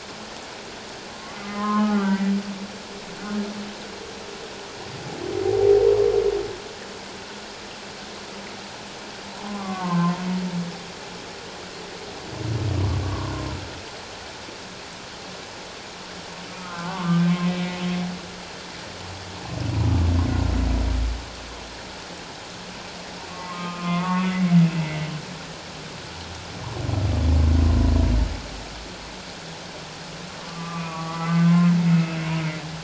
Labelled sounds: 1.2	2.3	humpback whale, 0.78 to 2.1 kHz
9.5	10.1	humpback whale, 0.97 to 2.2 kHz
13.0	13.3	humpback whale, 0.94 to 1.2 kHz
16.6	17.2	humpback whale, 0.84 to 1.6 kHz
23.3	24.5	humpback whale, 1.0 to 2.6 kHz
30.5	32.2	humpback whale, 1.0 to 2.7 kHz

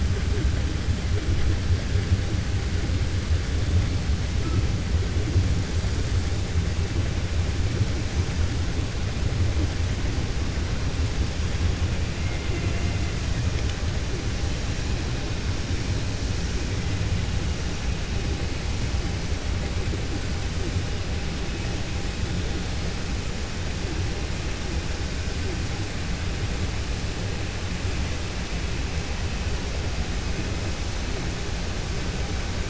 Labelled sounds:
12.2	13.0	killer whale, 1.4 to 2.9 kHz

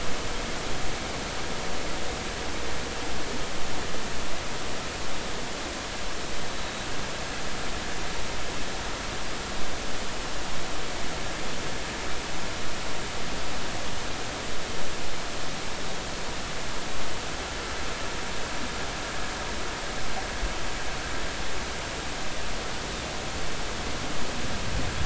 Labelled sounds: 6.5	6.9	Pacific white-sided dolphin, 3.8 to 4.0 kHz

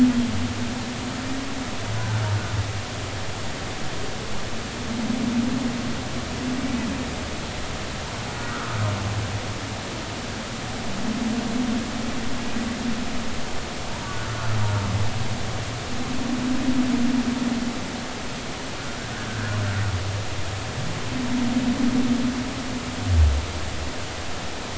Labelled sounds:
8.3	8.8	humpback whale, 1.2 to 1.6 kHz
19.3	19.6	humpback whale, 1.4 to 1.8 kHz

